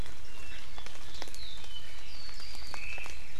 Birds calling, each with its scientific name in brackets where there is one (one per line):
Omao (Myadestes obscurus)